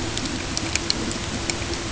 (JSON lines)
{"label": "ambient", "recorder": "HydroMoth"}